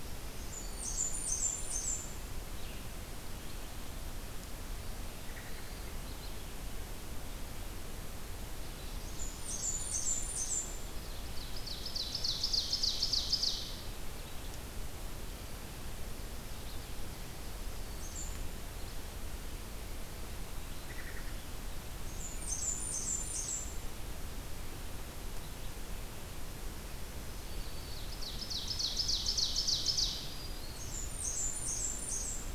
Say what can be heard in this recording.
Black-throated Green Warbler, Blackburnian Warbler, American Robin, Ovenbird